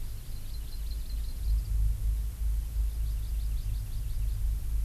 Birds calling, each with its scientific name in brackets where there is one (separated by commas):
Hawaii Amakihi (Chlorodrepanis virens)